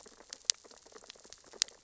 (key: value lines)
label: biophony, sea urchins (Echinidae)
recorder: SoundTrap 600 or HydroMoth